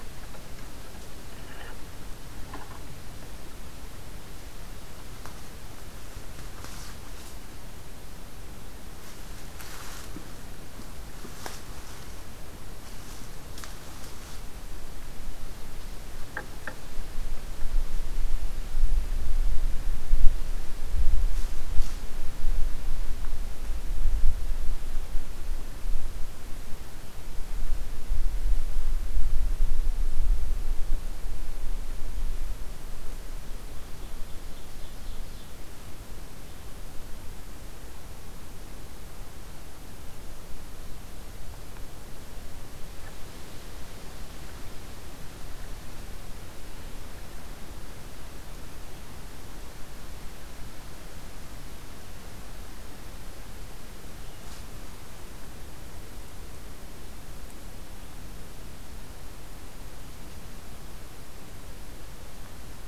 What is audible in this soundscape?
Ovenbird